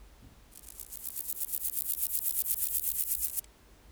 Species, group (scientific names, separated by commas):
Chorthippus corsicus, Orthoptera